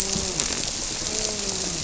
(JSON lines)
{"label": "biophony, grouper", "recorder": "SoundTrap 300"}